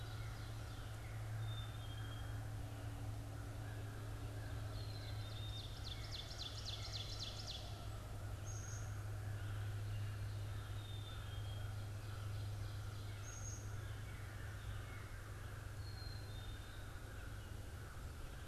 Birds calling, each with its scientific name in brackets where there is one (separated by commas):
Black-capped Chickadee (Poecile atricapillus), American Crow (Corvus brachyrhynchos), Ovenbird (Seiurus aurocapilla)